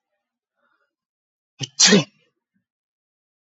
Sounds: Sneeze